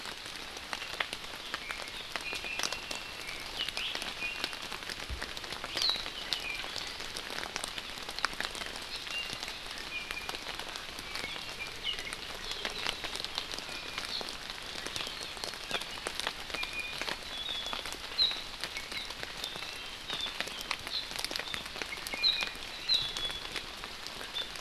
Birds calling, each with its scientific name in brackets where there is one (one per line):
Iiwi (Drepanis coccinea)
Hawaii Amakihi (Chlorodrepanis virens)